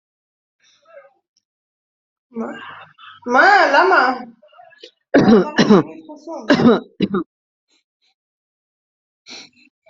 {"expert_labels": [{"quality": "ok", "cough_type": "dry", "dyspnea": false, "wheezing": false, "stridor": false, "choking": false, "congestion": true, "nothing": false, "diagnosis": "upper respiratory tract infection", "severity": "mild"}], "age": 27, "gender": "male", "respiratory_condition": false, "fever_muscle_pain": false, "status": "healthy"}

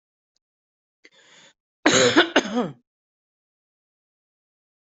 {"expert_labels": [{"quality": "good", "cough_type": "unknown", "dyspnea": false, "wheezing": false, "stridor": false, "choking": false, "congestion": false, "nothing": true, "diagnosis": "lower respiratory tract infection", "severity": "mild"}], "age": 38, "gender": "male", "respiratory_condition": false, "fever_muscle_pain": false, "status": "COVID-19"}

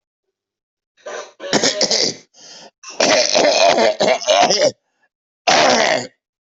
{"expert_labels": [{"quality": "ok", "cough_type": "dry", "dyspnea": true, "wheezing": false, "stridor": false, "choking": false, "congestion": false, "nothing": false, "diagnosis": "obstructive lung disease", "severity": "severe"}], "age": 54, "gender": "male", "respiratory_condition": false, "fever_muscle_pain": false, "status": "COVID-19"}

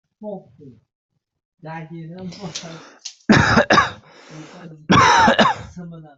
{"expert_labels": [{"quality": "good", "cough_type": "dry", "dyspnea": false, "wheezing": false, "stridor": false, "choking": false, "congestion": false, "nothing": true, "diagnosis": "healthy cough", "severity": "pseudocough/healthy cough"}], "age": 26, "gender": "other", "respiratory_condition": false, "fever_muscle_pain": false, "status": "COVID-19"}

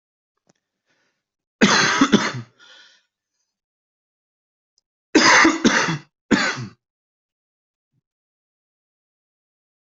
{"expert_labels": [{"quality": "good", "cough_type": "unknown", "dyspnea": false, "wheezing": false, "stridor": false, "choking": false, "congestion": false, "nothing": true, "diagnosis": "lower respiratory tract infection", "severity": "mild"}], "age": 38, "gender": "male", "respiratory_condition": false, "fever_muscle_pain": false, "status": "healthy"}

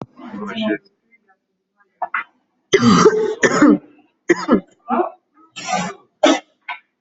{"expert_labels": [{"quality": "ok", "cough_type": "unknown", "dyspnea": false, "wheezing": false, "stridor": false, "choking": false, "congestion": false, "nothing": true, "diagnosis": "COVID-19", "severity": "mild"}], "age": 27, "gender": "female", "respiratory_condition": false, "fever_muscle_pain": false, "status": "healthy"}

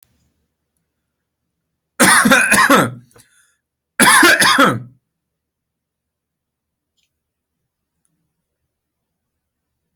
{"expert_labels": [{"quality": "ok", "cough_type": "dry", "dyspnea": false, "wheezing": false, "stridor": false, "choking": false, "congestion": false, "nothing": true, "diagnosis": "healthy cough", "severity": "pseudocough/healthy cough"}], "age": 24, "gender": "male", "respiratory_condition": false, "fever_muscle_pain": false, "status": "healthy"}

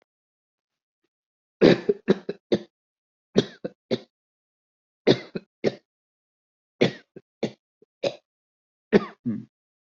{"expert_labels": [{"quality": "good", "cough_type": "wet", "dyspnea": false, "wheezing": false, "stridor": false, "choking": false, "congestion": false, "nothing": true, "diagnosis": "lower respiratory tract infection", "severity": "mild"}], "age": 52, "gender": "male", "respiratory_condition": false, "fever_muscle_pain": false, "status": "healthy"}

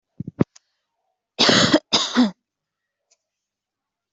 {"expert_labels": [{"quality": "ok", "cough_type": "dry", "dyspnea": false, "wheezing": false, "stridor": false, "choking": false, "congestion": false, "nothing": true, "diagnosis": "healthy cough", "severity": "pseudocough/healthy cough"}], "age": 24, "gender": "female", "respiratory_condition": false, "fever_muscle_pain": false, "status": "healthy"}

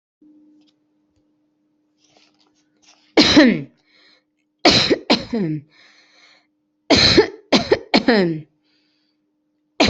{"expert_labels": [{"quality": "good", "cough_type": "dry", "dyspnea": false, "wheezing": false, "stridor": false, "choking": false, "congestion": false, "nothing": true, "diagnosis": "upper respiratory tract infection", "severity": "mild"}], "age": 39, "gender": "female", "respiratory_condition": false, "fever_muscle_pain": false, "status": "healthy"}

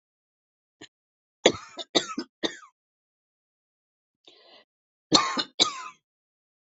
{"expert_labels": [{"quality": "good", "cough_type": "dry", "dyspnea": false, "wheezing": true, "stridor": false, "choking": false, "congestion": false, "nothing": false, "diagnosis": "lower respiratory tract infection", "severity": "mild"}], "age": 59, "gender": "female", "respiratory_condition": false, "fever_muscle_pain": false, "status": "symptomatic"}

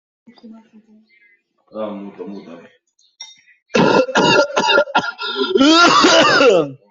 {"expert_labels": [{"quality": "good", "cough_type": "dry", "dyspnea": false, "wheezing": false, "stridor": false, "choking": false, "congestion": false, "nothing": true, "diagnosis": "lower respiratory tract infection", "severity": "severe"}], "age": 23, "gender": "male", "respiratory_condition": true, "fever_muscle_pain": false, "status": "symptomatic"}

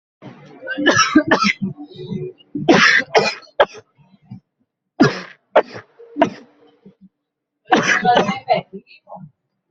{"expert_labels": [{"quality": "poor", "cough_type": "dry", "dyspnea": false, "wheezing": false, "stridor": false, "choking": false, "congestion": false, "nothing": false, "diagnosis": "COVID-19", "severity": "mild"}], "age": 19, "gender": "male", "respiratory_condition": false, "fever_muscle_pain": false, "status": "COVID-19"}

